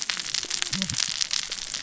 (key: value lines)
label: biophony, cascading saw
recorder: SoundTrap 600 or HydroMoth